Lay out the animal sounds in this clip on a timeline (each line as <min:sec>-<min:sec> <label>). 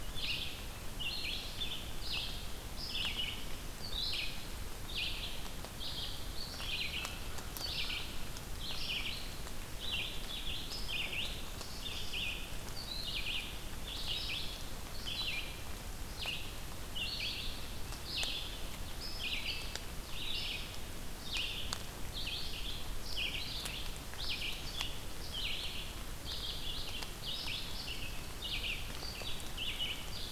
0:00.0-0:18.6 Red-eyed Vireo (Vireo olivaceus)
0:18.9-0:30.3 Red-eyed Vireo (Vireo olivaceus)